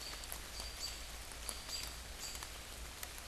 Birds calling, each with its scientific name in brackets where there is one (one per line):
American Robin (Turdus migratorius)